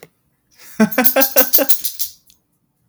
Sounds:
Laughter